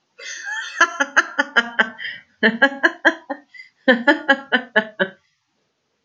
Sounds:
Laughter